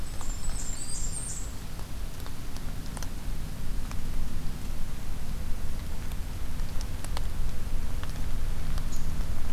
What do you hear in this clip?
Blackburnian Warbler, Black-throated Green Warbler, unidentified call